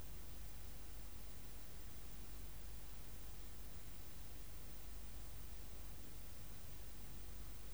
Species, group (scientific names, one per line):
Poecilimon jonicus
Orthoptera